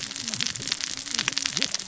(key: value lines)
label: biophony, cascading saw
recorder: SoundTrap 600 or HydroMoth